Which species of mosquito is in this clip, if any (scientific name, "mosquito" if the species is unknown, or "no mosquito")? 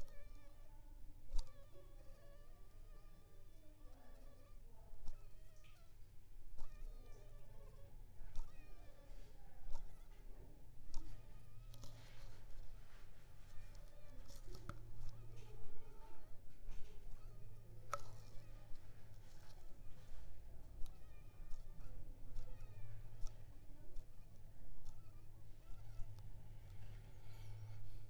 Anopheles funestus s.l.